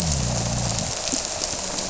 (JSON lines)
{"label": "biophony", "recorder": "SoundTrap 300"}